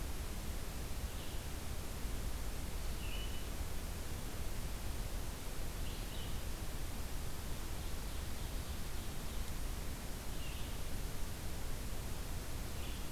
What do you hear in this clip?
Red-eyed Vireo, Ovenbird